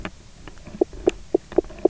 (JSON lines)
{"label": "biophony, knock croak", "recorder": "SoundTrap 300"}